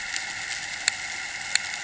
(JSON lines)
{"label": "anthrophony, boat engine", "recorder": "HydroMoth"}